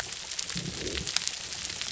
{"label": "biophony", "recorder": "SoundTrap 300"}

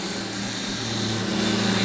{"label": "anthrophony, boat engine", "recorder": "SoundTrap 500"}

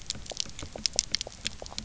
{"label": "biophony, pulse", "recorder": "SoundTrap 300"}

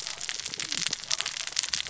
{"label": "biophony, cascading saw", "recorder": "SoundTrap 600 or HydroMoth"}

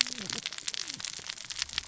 {"label": "biophony, cascading saw", "recorder": "SoundTrap 600 or HydroMoth"}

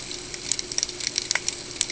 {"label": "ambient", "recorder": "HydroMoth"}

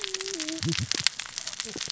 {"label": "biophony, cascading saw", "recorder": "SoundTrap 600 or HydroMoth"}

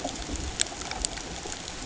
{"label": "ambient", "recorder": "HydroMoth"}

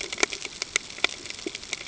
{"label": "ambient", "recorder": "HydroMoth"}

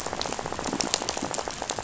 {"label": "biophony, rattle", "recorder": "SoundTrap 500"}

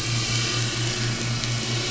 {"label": "anthrophony, boat engine", "recorder": "SoundTrap 500"}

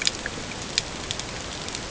{"label": "ambient", "recorder": "HydroMoth"}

